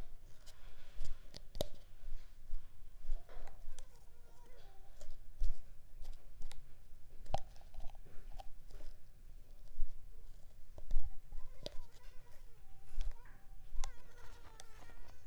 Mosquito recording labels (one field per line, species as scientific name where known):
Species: Culex pipiens complex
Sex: female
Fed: unfed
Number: one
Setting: cup